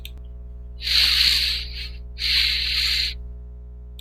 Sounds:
Sniff